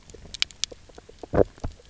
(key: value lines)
label: biophony, knock croak
recorder: SoundTrap 300